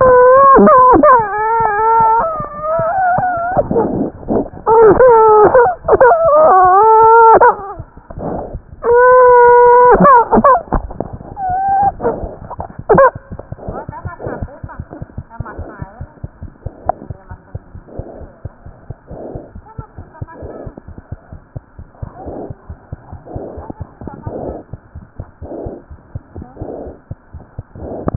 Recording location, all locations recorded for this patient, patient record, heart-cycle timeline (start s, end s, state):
mitral valve (MV)
mitral valve (MV)
#Age: Child
#Sex: Male
#Height: 77.0 cm
#Weight: 12.1 kg
#Pregnancy status: False
#Murmur: Absent
#Murmur locations: nan
#Most audible location: nan
#Systolic murmur timing: nan
#Systolic murmur shape: nan
#Systolic murmur grading: nan
#Systolic murmur pitch: nan
#Systolic murmur quality: nan
#Diastolic murmur timing: nan
#Diastolic murmur shape: nan
#Diastolic murmur grading: nan
#Diastolic murmur pitch: nan
#Diastolic murmur quality: nan
#Outcome: Abnormal
#Campaign: 2015 screening campaign
0.00	15.97	unannotated
15.97	16.09	S1
16.09	16.19	systole
16.19	16.30	S2
16.30	16.40	diastole
16.40	16.49	S1
16.49	16.63	systole
16.63	16.70	S2
16.70	16.84	diastole
16.84	16.94	S1
16.94	17.08	systole
17.08	17.16	S2
17.16	17.30	diastole
17.30	17.39	S1
17.39	17.53	systole
17.53	17.59	S2
17.59	17.74	diastole
17.74	17.81	S1
17.81	17.97	systole
17.97	18.02	S2
18.02	18.19	diastole
18.19	18.27	S1
18.27	18.42	systole
18.42	18.49	S2
18.49	18.64	diastole
18.64	18.72	S1
18.72	18.87	systole
18.87	18.95	S2
18.95	19.09	diastole
19.09	19.17	S1
19.17	19.34	systole
19.34	19.40	S2
19.40	19.53	diastole
19.53	19.61	S1
19.61	19.76	systole
19.76	19.86	S2
19.86	19.96	diastole
19.96	20.04	S1
20.04	20.19	systole
20.19	20.27	S2
20.27	20.40	diastole
20.40	20.51	S1
20.51	20.65	systole
20.65	20.72	S2
20.72	20.87	diastole
20.87	20.94	S1
20.94	21.09	systole
21.09	21.17	S2
21.17	21.31	diastole
21.31	21.37	S1
21.37	21.54	systole
21.54	21.60	S2
21.60	21.77	diastole
21.77	21.85	S1
21.85	22.00	systole
22.00	22.07	S2
22.07	22.25	diastole
22.25	22.31	S1
22.31	22.48	systole
22.48	22.55	S2
22.55	22.68	diastole
22.68	22.75	S1
22.75	22.90	systole
22.90	22.97	S2
22.97	23.11	diastole
23.11	23.18	S1
23.18	23.34	systole
23.34	23.40	S2
23.40	23.55	diastole
23.55	23.64	S1
23.64	23.79	systole
23.79	23.86	S2
23.86	24.00	diastole
24.00	24.10	S1
24.10	24.24	systole
24.24	24.31	S2
24.31	28.16	unannotated